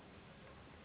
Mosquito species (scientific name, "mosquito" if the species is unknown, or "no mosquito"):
Anopheles gambiae s.s.